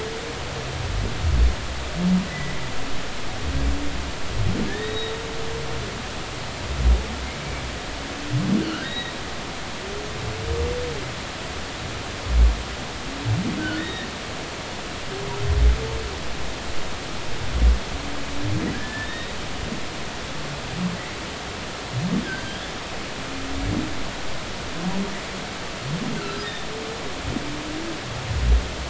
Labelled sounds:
2.3	2.5	humpback whale, 1.9 to 2.0 kHz
4.7	5.1	humpback whale, 1.6 to 3.9 kHz
8.8	9.1	humpback whale, 1.8 to 3.9 kHz
13.6	14.1	humpback whale, 1.3 to 3.8 kHz
18.7	19.4	humpback whale, 1.6 to 3.8 kHz
22.2	22.8	humpback whale, 1.5 to 3.6 kHz
26.2	26.5	humpback whale, 1.3 to 1.6 kHz

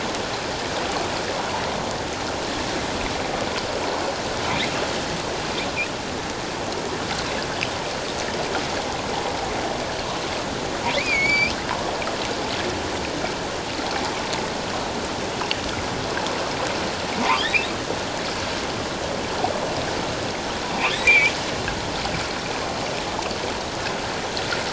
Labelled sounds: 10.9	11.5	humpback whale, 2.0 to 7.0 kHz
17.3	17.6	humpback whale, 3.0 to 3.9 kHz
20.9	21.3	humpback whale, 1.7 to 2.7 kHz

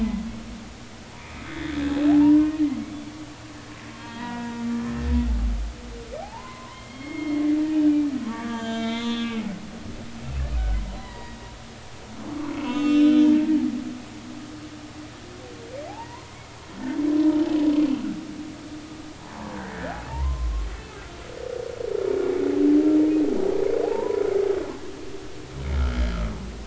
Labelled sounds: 1.5	1.8	humpback whale, 3.3 to 3.6 kHz
2.1	2.6	humpback whale, 0.80 to 1.1 kHz
4.0	4.6	humpback whale, 0.90 to 3.3 kHz
6.2	7.9	humpback whale, 0.80 to 3.3 kHz
8.2	9.5	humpback whale, 1.0 to 7.1 kHz
10.2	11.4	humpback whale, 0.90 to 2.8 kHz
12.5	13.3	humpback whale, 1.2 to 3.8 kHz
15.9	16.2	humpback whale, 0.80 to 1.1 kHz
19.6	20.7	humpback whale, 0.86 to 2.0 kHz
23.8	24.2	humpback whale, 0.80 to 1.1 kHz

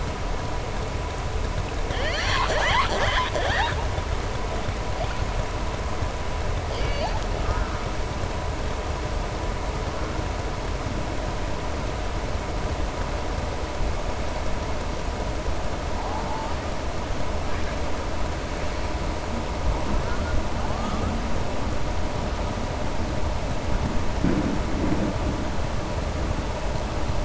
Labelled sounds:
1.8	3.8	killer whale, southern resident, 0.56 to 7.7 kHz
6.6	7.2	killer whale, southern resident, 0.54 to 5.0 kHz

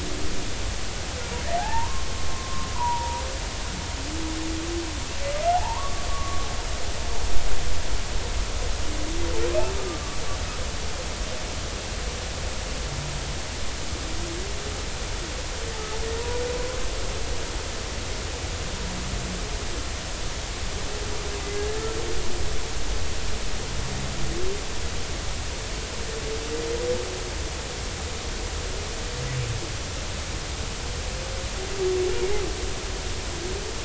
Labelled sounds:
1.6	3.2	humpback whale, 0.80 to 1.9 kHz
5.5	6.5	humpback whale, 0.80 to 1.2 kHz
9.7	10.2	humpback whale, 1.1 to 1.2 kHz
21.5	21.8	humpback whale, 1.6 to 1.8 kHz

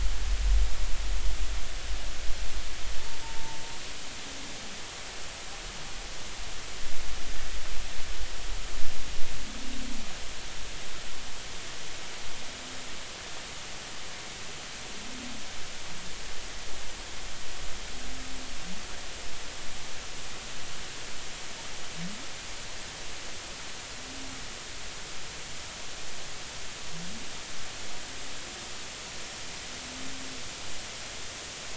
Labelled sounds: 3.2	3.6	humpback whale, 0.83 to 0.96 kHz

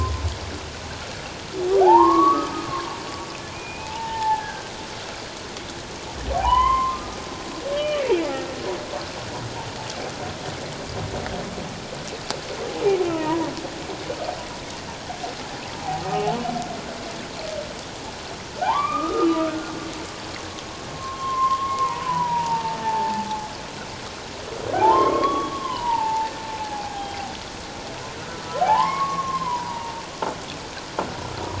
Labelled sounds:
1.7	2.7	humpback whale, 0.78 to 1.3 kHz
3.5	4.7	humpback whale, 0.78 to 2.6 kHz
6.3	8.0	humpback whale, 0.78 to 3.2 kHz
8.3	8.5	humpback whale, 1.3 to 1.4 kHz
13.0	13.5	humpback whale, 0.84 to 2.8 kHz
18.6	19.7	humpback whale, 0.78 to 2.5 kHz
20.9	23.5	humpback whale, 0.81 to 2.2 kHz
24.7	26.3	humpback whale, 0.78 to 3.5 kHz
26.6	27.3	humpback whale, 0.78 to 0.88 kHz
28.2	30.0	humpback whale, 0.78 to 1.4 kHz

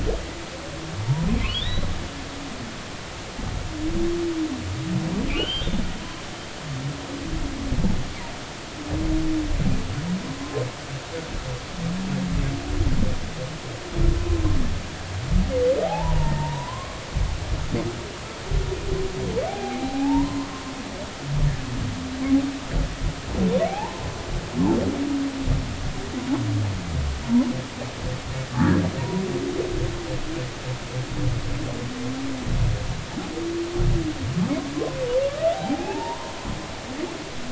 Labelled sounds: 1.5	1.9	humpback whale, 2.8 to 4.1 kHz
5.3	6.2	humpback whale, 0.96 to 3.7 kHz
15.8	17.0	humpback whale, 0.80 to 1.9 kHz
19.5	20.5	humpback whale, 0.80 to 4.0 kHz
23.7	24.0	humpback whale, 0.80 to 1.1 kHz
28.6	29.2	humpback whale, 0.90 to 1.9 kHz
34.8	35.0	humpback whale, 0.96 to 1.1 kHz
35.5	36.3	humpback whale, 0.80 to 1.1 kHz

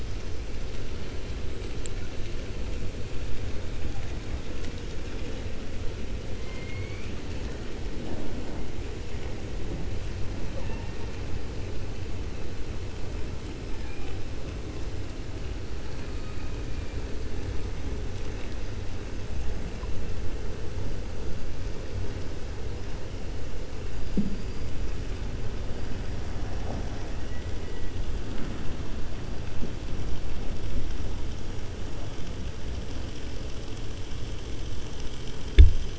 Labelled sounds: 6.4	7.2	killer whale, 2.1 to 5.0 kHz
13.7	14.2	killer whale, 1.6 to 3.6 kHz

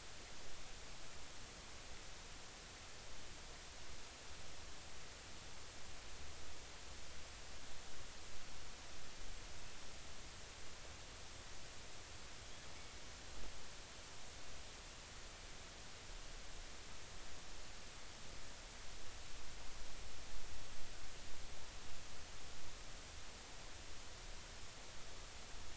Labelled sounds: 12.8	13.0	killer whale, northern resident, G clan, GG subclan, 2.2 to 2.3 kHz

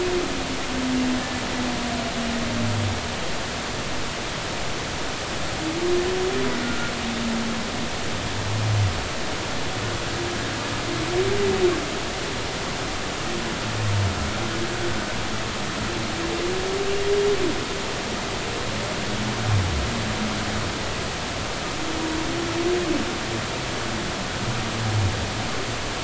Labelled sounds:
6.6	6.9	humpback whale, 1.4 to 1.5 kHz

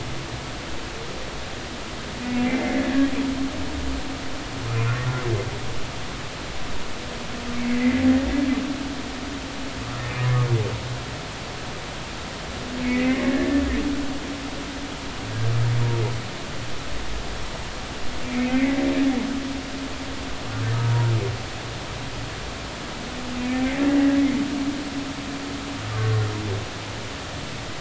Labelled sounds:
2.2	2.8	humpback whale, 2.0 to 2.5 kHz
4.7	4.9	humpback whale, 2.3 to 2.6 kHz
7.8	8.1	humpback whale, 1.9 to 2.1 kHz
12.8	13.6	humpback whale, 1.7 to 2.3 kHz
18.2	18.8	humpback whale, 2.0 to 2.7 kHz

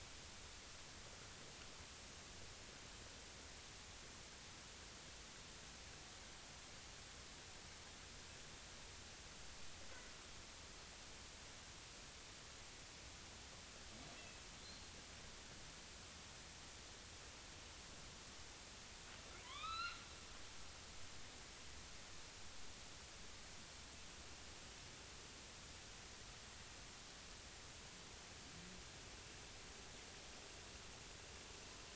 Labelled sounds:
14.6	14.9	killer whale, northern resident, A clan, AB subclan, 4.0 to 4.4 kHz
19.4	20.0	killer whale, northern resident, A clan, AB subclan, 0.93 to 4.3 kHz

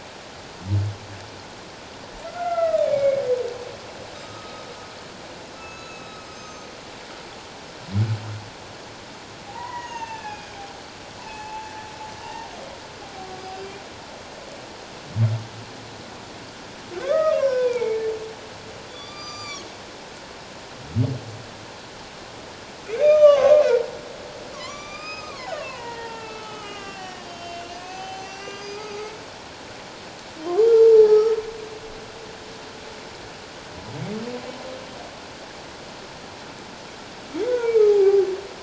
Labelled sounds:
2.2	3.2	humpback whale, 1.2 to 2.5 kHz
4.2	4.7	humpback whale, 1.2 to 5.1 kHz
5.6	6.7	humpback whale, 2.5 to 6.7 kHz
9.5	10.6	humpback whale, 0.78 to 6.7 kHz
11.2	11.7	humpback whale, 0.81 to 2.8 kHz
12.2	12.5	humpback whale, 0.88 to 0.97 kHz
13.3	13.6	humpback whale, 4.8 to 5.0 kHz
17.0	18.0	humpback whale, 0.81 to 5.8 kHz
18.9	19.7	humpback whale, 1.1 to 7.3 kHz
22.9	23.7	humpback whale, 1.0 to 6.5 kHz
24.5	29.2	humpback whale, 0.78 to 6.6 kHz
30.9	31.3	humpback whale, 0.81 to 1.4 kHz
37.5	38.3	humpback whale, 0.78 to 2.4 kHz

